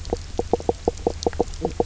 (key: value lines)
label: biophony, knock croak
recorder: SoundTrap 300